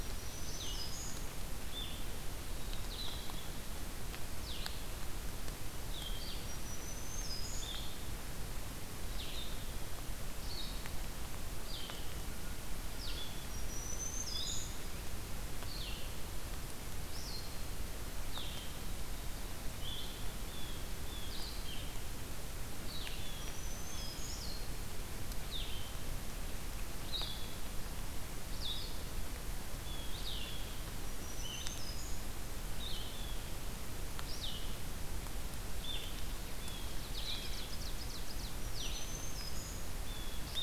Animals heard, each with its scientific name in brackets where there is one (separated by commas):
Blue-headed Vireo (Vireo solitarius), Blue Jay (Cyanocitta cristata), Black-throated Green Warbler (Setophaga virens), Ovenbird (Seiurus aurocapilla)